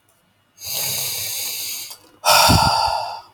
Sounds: Sigh